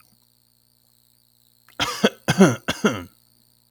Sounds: Cough